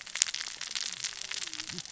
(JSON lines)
{"label": "biophony, cascading saw", "recorder": "SoundTrap 600 or HydroMoth"}